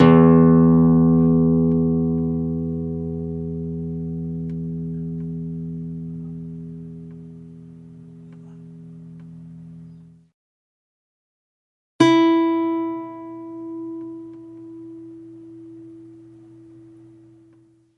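A chord is played on an old acoustic guitar. 0:00.1 - 0:08.8
A chord is played on an old acoustic guitar. 0:11.5 - 0:18.0

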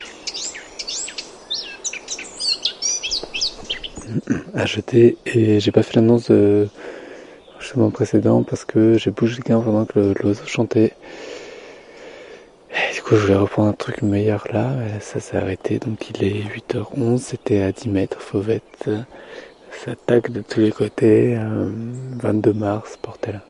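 Many birds chirp at regular intervals with different song patterns. 0:00.0 - 0:04.1
A man speaks in French while birds chirp faintly in the distance. 0:04.2 - 0:23.4

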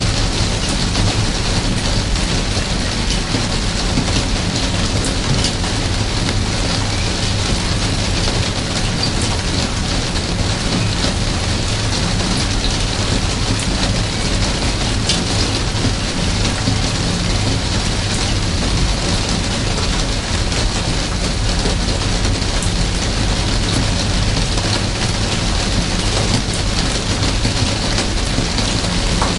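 Atmospheric rhythmic noise. 0:00.0 - 0:29.4

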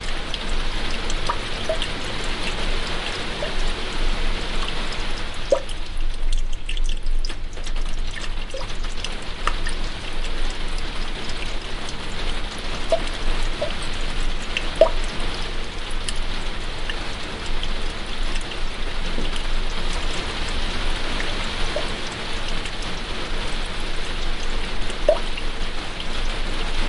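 Water drizzling into water. 0:00.0 - 0:26.9
Water is raining down. 0:00.0 - 0:26.9

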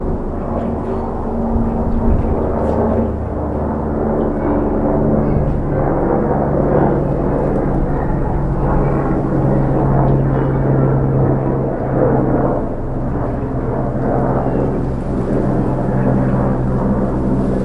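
A propeller plane is flying. 0:00.0 - 0:17.6

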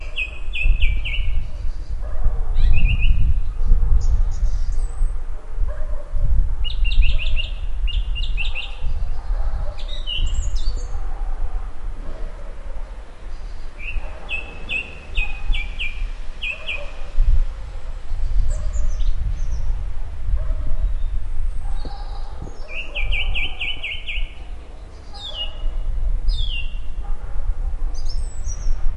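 A bird chirps periodically. 0:00.0 - 0:29.0
A dog barks in the background. 0:00.0 - 0:29.0
Wind blowing continuously. 0:00.0 - 0:29.0

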